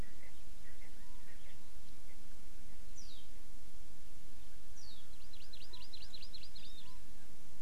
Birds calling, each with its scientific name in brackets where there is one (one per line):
Hawaii Amakihi (Chlorodrepanis virens)
Erckel's Francolin (Pternistis erckelii)
Warbling White-eye (Zosterops japonicus)